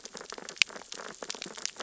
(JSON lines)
{"label": "biophony, sea urchins (Echinidae)", "recorder": "SoundTrap 600 or HydroMoth"}